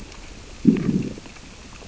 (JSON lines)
{"label": "biophony, growl", "recorder": "SoundTrap 600 or HydroMoth"}